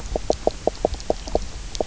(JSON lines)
{"label": "biophony, knock croak", "recorder": "SoundTrap 300"}